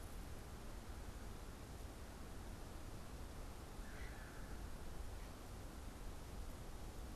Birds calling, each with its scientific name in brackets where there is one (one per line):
unidentified bird